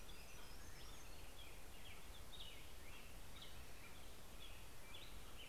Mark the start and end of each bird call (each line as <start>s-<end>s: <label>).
0.0s-5.5s: American Robin (Turdus migratorius)
0.0s-5.5s: Hermit Warbler (Setophaga occidentalis)
3.6s-5.5s: Common Raven (Corvus corax)